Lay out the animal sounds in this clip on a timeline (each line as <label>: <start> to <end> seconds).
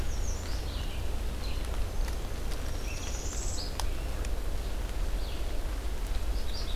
American Redstart (Setophaga ruticilla): 0.0 to 0.7 seconds
Red-eyed Vireo (Vireo olivaceus): 0.0 to 6.8 seconds
Northern Parula (Setophaga americana): 2.6 to 3.7 seconds
Magnolia Warbler (Setophaga magnolia): 6.2 to 6.8 seconds